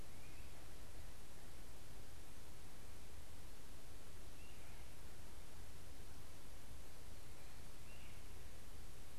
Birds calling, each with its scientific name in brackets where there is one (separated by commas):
Great Crested Flycatcher (Myiarchus crinitus)